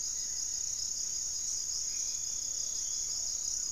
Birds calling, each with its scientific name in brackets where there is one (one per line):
Gray-fronted Dove (Leptotila rufaxilla)
Goeldi's Antbird (Akletos goeldii)
Black-faced Antthrush (Formicarius analis)
Plumbeous Pigeon (Patagioenas plumbea)